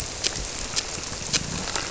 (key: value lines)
label: biophony
recorder: SoundTrap 300